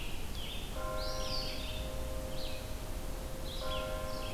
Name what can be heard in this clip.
Scarlet Tanager, Red-eyed Vireo, Eastern Wood-Pewee